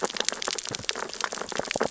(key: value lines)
label: biophony, sea urchins (Echinidae)
recorder: SoundTrap 600 or HydroMoth